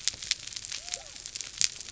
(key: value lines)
label: biophony
recorder: SoundTrap 300